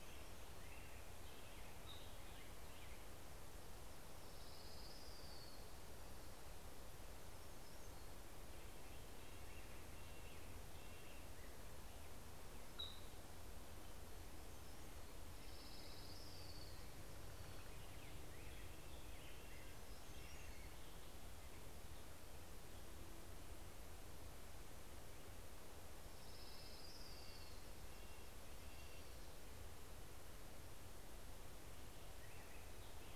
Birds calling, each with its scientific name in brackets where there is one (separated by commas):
Hermit Warbler (Setophaga occidentalis), Orange-crowned Warbler (Leiothlypis celata), Red-breasted Nuthatch (Sitta canadensis), American Robin (Turdus migratorius)